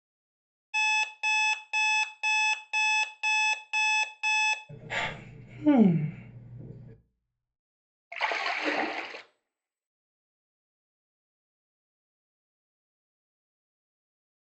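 At 0.73 seconds, an alarm can be heard. Then at 4.68 seconds, someone sighs. Finally, at 8.1 seconds, you can hear splashing.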